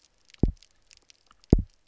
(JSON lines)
{"label": "biophony, double pulse", "recorder": "SoundTrap 300"}